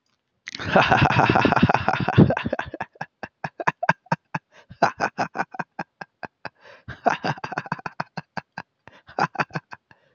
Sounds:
Laughter